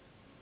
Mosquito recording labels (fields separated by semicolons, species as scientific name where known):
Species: Anopheles gambiae s.s.; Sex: female; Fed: unfed; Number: one; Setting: insect culture